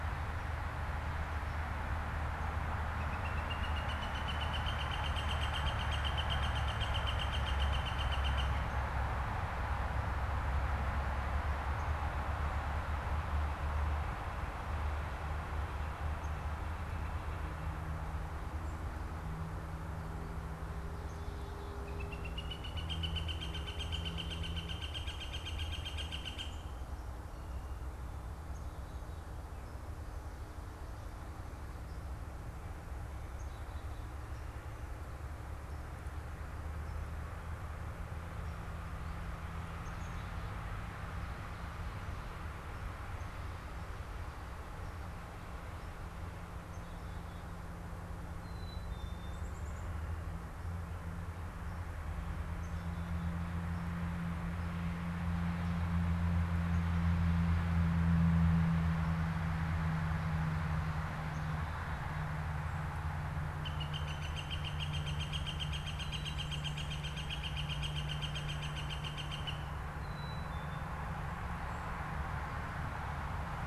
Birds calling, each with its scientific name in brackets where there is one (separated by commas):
Northern Flicker (Colaptes auratus), Northern Cardinal (Cardinalis cardinalis), Black-capped Chickadee (Poecile atricapillus), unidentified bird